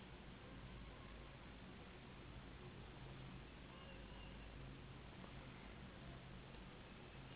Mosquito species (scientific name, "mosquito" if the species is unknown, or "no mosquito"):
Anopheles gambiae s.s.